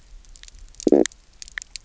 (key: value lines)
label: biophony, stridulation
recorder: SoundTrap 300